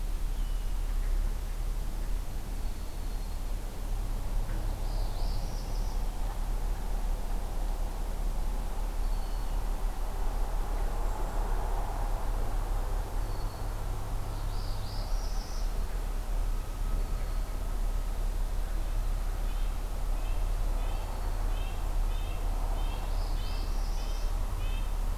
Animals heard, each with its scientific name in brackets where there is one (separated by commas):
Golden-crowned Kinglet (Regulus satrapa), Red-breasted Nuthatch (Sitta canadensis), Northern Parula (Setophaga americana)